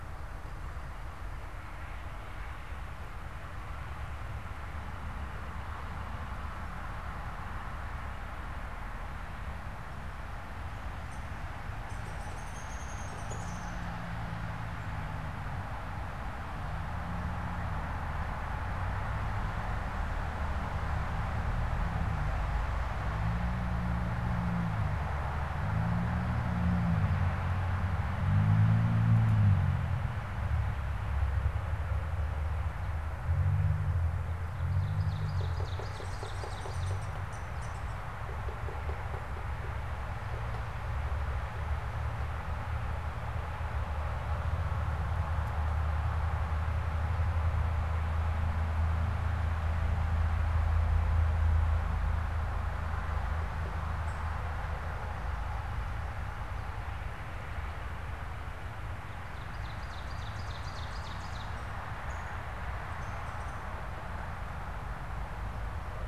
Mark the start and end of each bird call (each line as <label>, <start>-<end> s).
Downy Woodpecker (Dryobates pubescens), 10.9-11.3 s
Downy Woodpecker (Dryobates pubescens), 11.8-13.9 s
Ovenbird (Seiurus aurocapilla), 34.5-37.0 s
Downy Woodpecker (Dryobates pubescens), 35.8-37.8 s
Ovenbird (Seiurus aurocapilla), 59.0-61.6 s
Downy Woodpecker (Dryobates pubescens), 61.8-62.3 s